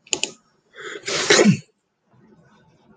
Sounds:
Sneeze